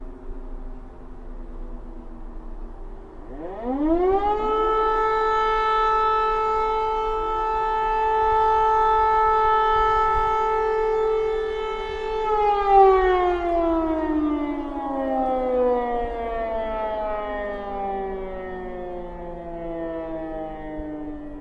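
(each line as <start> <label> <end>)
0.0 A low-pitched sound occurs just before an alarm. 3.6
3.7 A high-pitched siren alarm sounds. 12.2
12.2 An alarm siren fades away. 21.3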